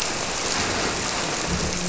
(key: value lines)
label: biophony, grouper
recorder: SoundTrap 300